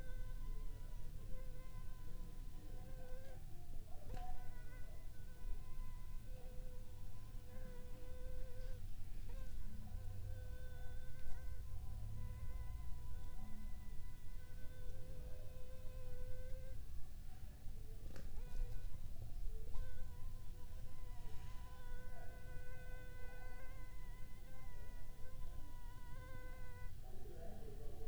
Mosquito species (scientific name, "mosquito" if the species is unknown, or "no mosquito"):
Anopheles funestus s.s.